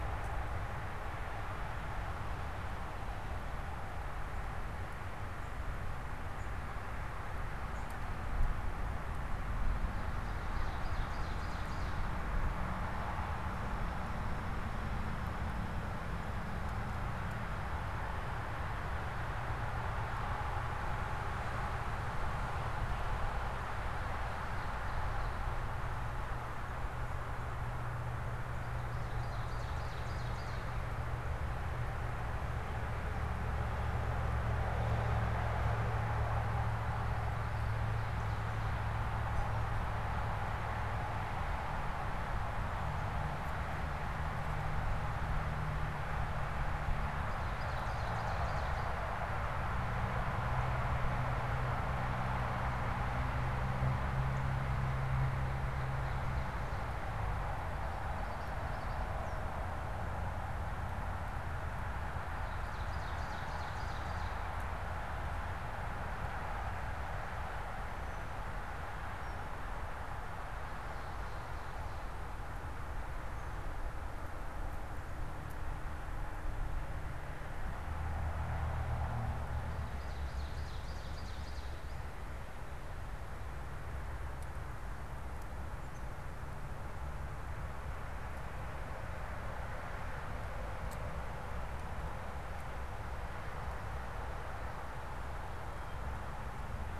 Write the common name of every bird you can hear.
Ovenbird